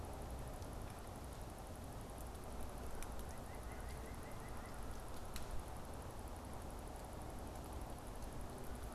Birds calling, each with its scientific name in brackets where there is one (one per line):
White-breasted Nuthatch (Sitta carolinensis)